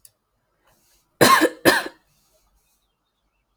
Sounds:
Cough